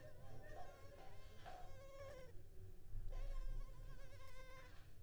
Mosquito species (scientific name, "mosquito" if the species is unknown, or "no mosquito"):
Culex pipiens complex